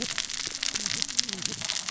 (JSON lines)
{"label": "biophony, cascading saw", "recorder": "SoundTrap 600 or HydroMoth"}